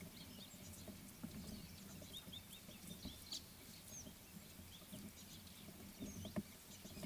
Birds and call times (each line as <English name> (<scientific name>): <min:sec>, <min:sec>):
Gabar Goshawk (Micronisus gabar): 0:02.4